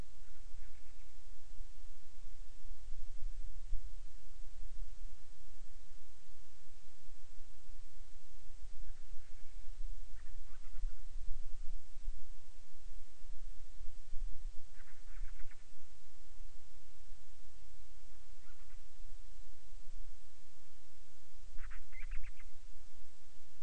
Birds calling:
Band-rumped Storm-Petrel (Hydrobates castro)

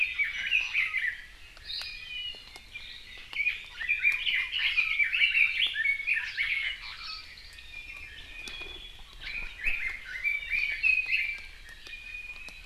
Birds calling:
Iiwi (Drepanis coccinea), Red-billed Leiothrix (Leiothrix lutea)

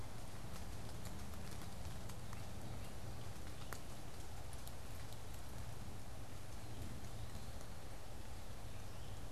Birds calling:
unidentified bird, Eastern Wood-Pewee (Contopus virens)

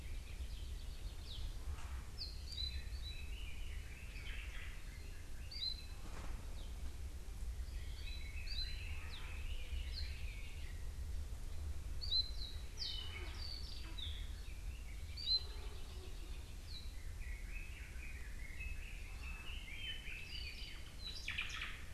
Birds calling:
Omao (Myadestes obscurus), Red-billed Leiothrix (Leiothrix lutea), Hawaii Creeper (Loxops mana)

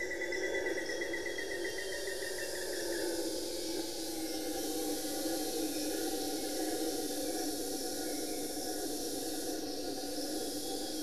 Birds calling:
Hauxwell's Thrush (Turdus hauxwelli), Amazonian Grosbeak (Cyanoloxia rothschildii), Black-faced Antthrush (Formicarius analis)

